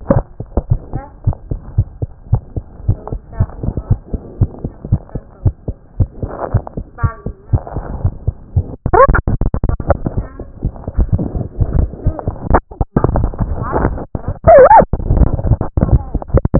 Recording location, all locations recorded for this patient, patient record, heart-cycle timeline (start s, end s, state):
mitral valve (MV)
mitral valve (MV)
#Age: Child
#Sex: Female
#Height: 89.0 cm
#Weight: 12.5 kg
#Pregnancy status: False
#Murmur: Absent
#Murmur locations: nan
#Most audible location: nan
#Systolic murmur timing: nan
#Systolic murmur shape: nan
#Systolic murmur grading: nan
#Systolic murmur pitch: nan
#Systolic murmur quality: nan
#Diastolic murmur timing: nan
#Diastolic murmur shape: nan
#Diastolic murmur grading: nan
#Diastolic murmur pitch: nan
#Diastolic murmur quality: nan
#Outcome: Normal
#Campaign: 2014 screening campaign
0.00	0.62	unannotated
0.62	0.70	diastole
0.70	0.80	S1
0.80	0.94	systole
0.94	1.02	S2
1.02	1.26	diastole
1.26	1.36	S1
1.36	1.50	systole
1.50	1.60	S2
1.60	1.76	diastole
1.76	1.88	S1
1.88	2.00	systole
2.00	2.10	S2
2.10	2.30	diastole
2.30	2.42	S1
2.42	2.56	systole
2.56	2.64	S2
2.64	2.86	diastole
2.86	2.98	S1
2.98	3.12	systole
3.12	3.20	S2
3.20	3.38	diastole
3.38	16.59	unannotated